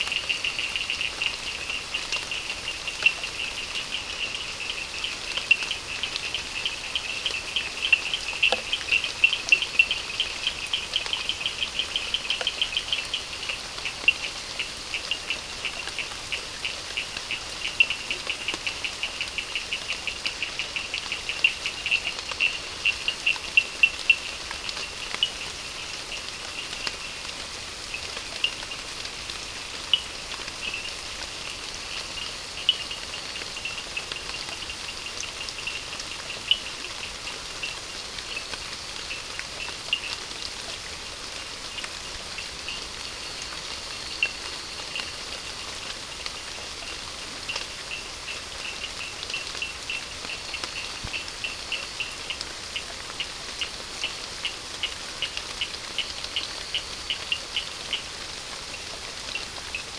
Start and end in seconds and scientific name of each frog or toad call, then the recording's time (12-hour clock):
0.0	25.4	Sphaenorhynchus surdus
28.2	30.7	Sphaenorhynchus surdus
36.1	40.6	Sphaenorhynchus surdus
41.7	42.9	Sphaenorhynchus surdus
44.1	45.4	Sphaenorhynchus surdus
47.1	58.5	Sphaenorhynchus surdus
7:15pm